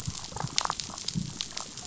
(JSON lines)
{"label": "biophony, damselfish", "recorder": "SoundTrap 500"}